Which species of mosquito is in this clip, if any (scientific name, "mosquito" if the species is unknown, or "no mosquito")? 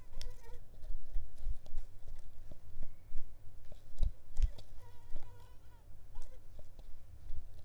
Mansonia africanus